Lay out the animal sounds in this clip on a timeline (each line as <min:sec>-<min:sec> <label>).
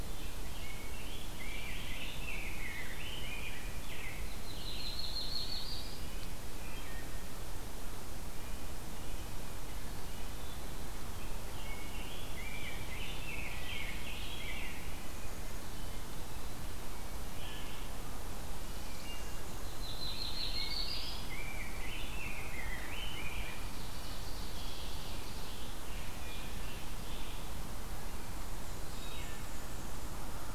0:00.0-0:04.2 Rose-breasted Grosbeak (Pheucticus ludovicianus)
0:04.1-0:06.1 Yellow-rumped Warbler (Setophaga coronata)
0:06.6-0:07.2 Wood Thrush (Hylocichla mustelina)
0:08.3-0:10.5 Red-breasted Nuthatch (Sitta canadensis)
0:11.8-0:15.1 Rose-breasted Grosbeak (Pheucticus ludovicianus)
0:18.6-0:19.5 Wood Thrush (Hylocichla mustelina)
0:19.2-0:21.4 Yellow-rumped Warbler (Setophaga coronata)
0:21.2-0:24.0 Rose-breasted Grosbeak (Pheucticus ludovicianus)
0:23.6-0:25.9 Ovenbird (Seiurus aurocapilla)
0:26.1-0:27.0 Wood Thrush (Hylocichla mustelina)
0:28.2-0:30.2 Black-and-white Warbler (Mniotilta varia)
0:28.8-0:29.5 Wood Thrush (Hylocichla mustelina)